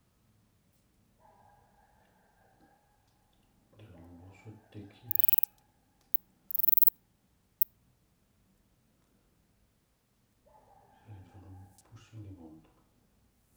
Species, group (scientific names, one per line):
Ancistrura nigrovittata
Orthoptera